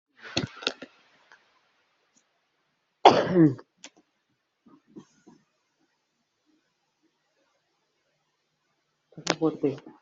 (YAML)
expert_labels:
- quality: ok
  cough_type: unknown
  dyspnea: false
  wheezing: false
  stridor: false
  choking: false
  congestion: false
  nothing: true
  diagnosis: lower respiratory tract infection
  severity: mild
age: 33
gender: female
respiratory_condition: false
fever_muscle_pain: false
status: healthy